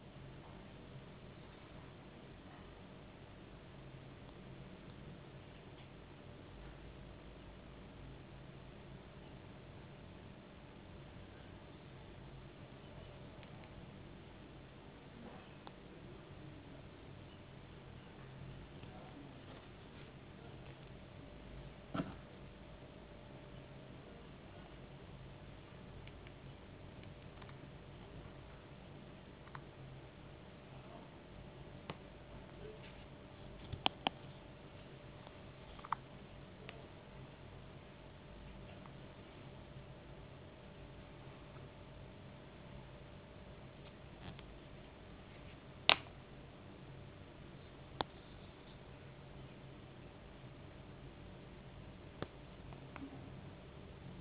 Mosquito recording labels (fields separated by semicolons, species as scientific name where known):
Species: no mosquito; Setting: insect culture